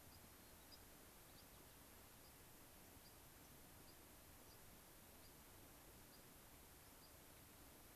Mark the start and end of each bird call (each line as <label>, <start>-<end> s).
White-crowned Sparrow (Zonotrichia leucophrys), 0.0-1.8 s
White-crowned Sparrow (Zonotrichia leucophrys), 2.2-2.3 s
White-crowned Sparrow (Zonotrichia leucophrys), 3.0-3.1 s
White-crowned Sparrow (Zonotrichia leucophrys), 3.8-4.0 s
White-crowned Sparrow (Zonotrichia leucophrys), 4.4-4.6 s
White-crowned Sparrow (Zonotrichia leucophrys), 5.2-5.3 s
White-crowned Sparrow (Zonotrichia leucophrys), 6.0-6.3 s
White-crowned Sparrow (Zonotrichia leucophrys), 6.9-7.1 s